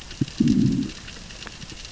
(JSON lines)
{"label": "biophony, growl", "recorder": "SoundTrap 600 or HydroMoth"}